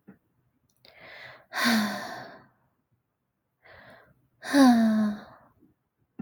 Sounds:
Sigh